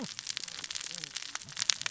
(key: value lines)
label: biophony, cascading saw
recorder: SoundTrap 600 or HydroMoth